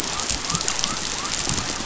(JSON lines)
{"label": "biophony", "recorder": "SoundTrap 500"}